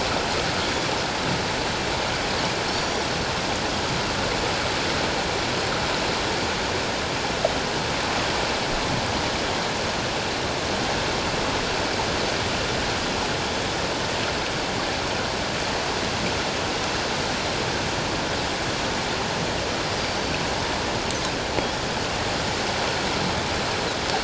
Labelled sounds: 0.6	0.9	Pacific white-sided dolphin, 3.3 to 3.5 kHz
2.7	3.0	Pacific white-sided dolphin, 4.2 to 5.8 kHz
20.0	20.4	Pacific white-sided dolphin, 4.2 to 4.9 kHz

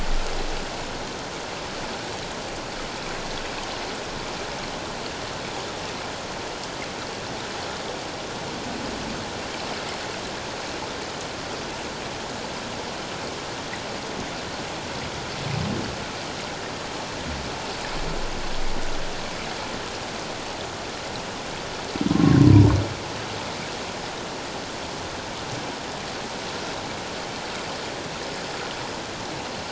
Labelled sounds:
22.1	22.4	humpback whale, 1.0 to 1.1 kHz

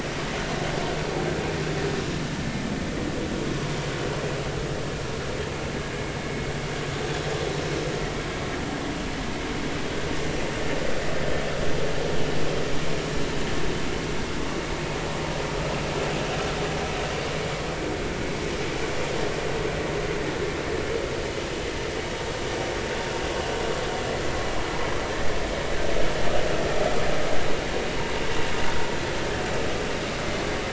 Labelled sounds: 28.6	28.9	vessel noise, 1.4 to 1.5 kHz

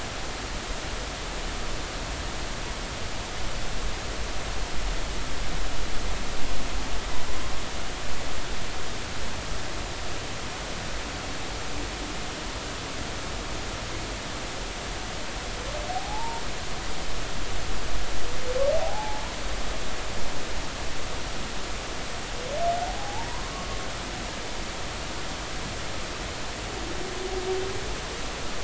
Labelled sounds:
15.9	16.4	humpback whale, 0.80 to 1.0 kHz
18.7	19.2	humpback whale, 0.80 to 0.99 kHz
22.8	23.5	humpback whale, 0.80 to 1.1 kHz

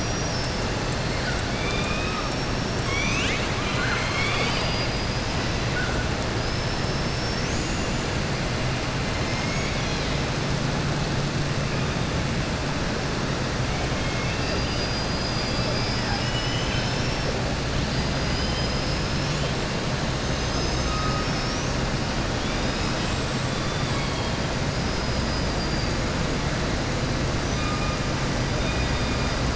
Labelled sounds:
1.5	5.4	killer whale, southern resident, 0.85 to 7.8 kHz
9.2	10.2	killer whale, southern resident, 2.1 to 7.5 kHz
13.9	14.6	killer whale, southern resident, 1.8 to 3.3 kHz
22.9	24.4	killer whale, southern resident, 1.7 to 8.0 kHz
24.8	25.9	killer whale, southern resident, 4.6 to 5.7 kHz

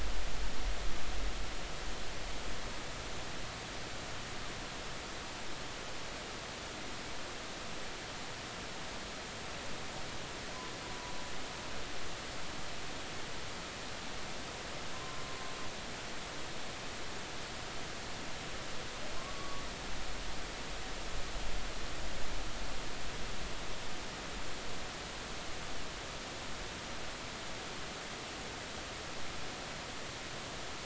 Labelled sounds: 14.9	15.2	humpback whale, 0.99 to 1.1 kHz
19.2	19.6	humpback whale, 0.99 to 1.2 kHz

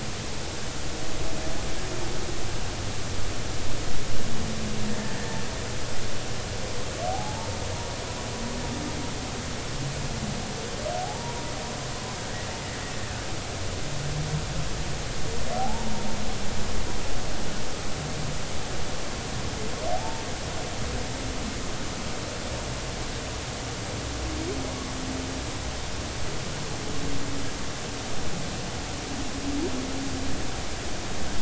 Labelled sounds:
4.9	5.2	humpback whale, 1.7 to 1.9 kHz
7.1	7.6	humpback whale, 0.80 to 0.99 kHz
11.0	11.4	humpback whale, 0.80 to 0.99 kHz
15.6	15.9	humpback whale, 0.80 to 0.99 kHz
19.9	20.2	humpback whale, 0.80 to 0.96 kHz

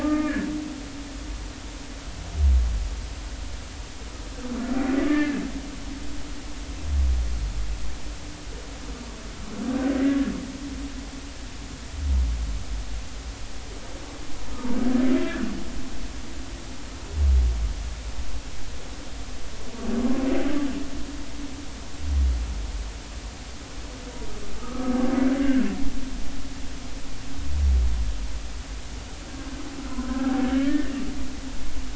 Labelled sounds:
0.0	0.5	humpback whale, 1.2 to 1.9 kHz
5.1	5.4	humpback whale, 1.6 to 2.2 kHz
24.6	25.7	humpback whale, 1.1 to 1.9 kHz
30.1	31.0	humpback whale, 1.5 to 1.9 kHz

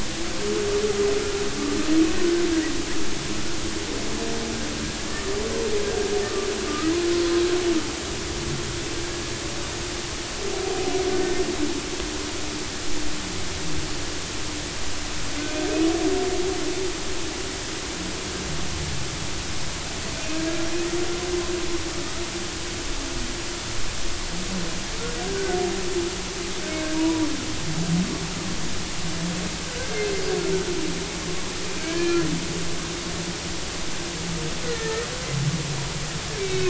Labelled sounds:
6.2	6.9	humpback whale, 1.1 to 1.3 kHz
25.3	25.6	humpback whale, 1.4 to 1.6 kHz
26.9	27.3	humpback whale, 0.90 to 1.0 kHz
29.7	30.0	humpback whale, 1.4 to 1.7 kHz
31.8	32.2	humpback whale, 1.5 to 1.8 kHz
34.6	35.1	humpback whale, 1.2 to 2.2 kHz
36.4	36.6	humpback whale, 2.1 to 3.9 kHz

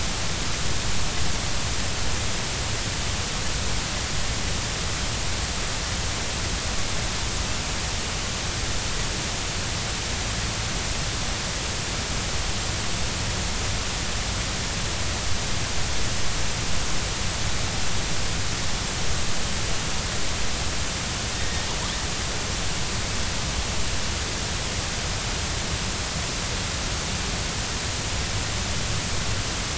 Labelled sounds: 21.4	21.7	killer whale, northern resident, G clan, 1.8 to 2.0 kHz

